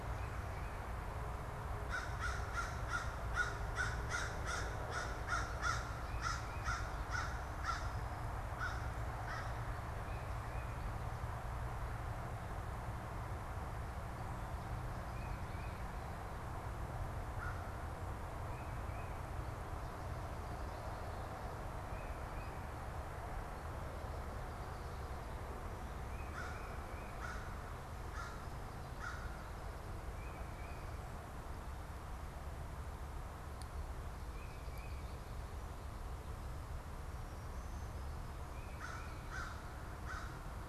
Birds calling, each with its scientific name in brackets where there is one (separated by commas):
Tufted Titmouse (Baeolophus bicolor), American Crow (Corvus brachyrhynchos)